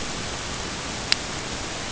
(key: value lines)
label: ambient
recorder: HydroMoth